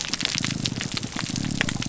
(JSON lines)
{"label": "biophony, grouper groan", "recorder": "SoundTrap 300"}